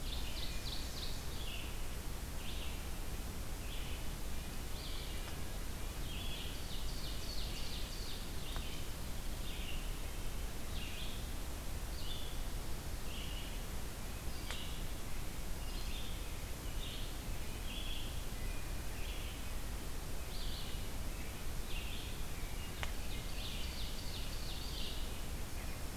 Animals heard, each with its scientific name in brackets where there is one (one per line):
Red-eyed Vireo (Vireo olivaceus)
Ovenbird (Seiurus aurocapilla)
Wood Thrush (Hylocichla mustelina)